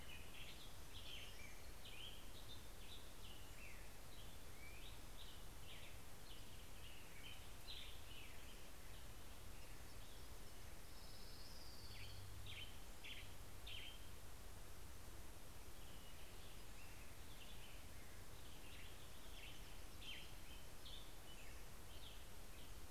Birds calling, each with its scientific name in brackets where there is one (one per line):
American Robin (Turdus migratorius)
Orange-crowned Warbler (Leiothlypis celata)
Hermit Warbler (Setophaga occidentalis)
Western Tanager (Piranga ludoviciana)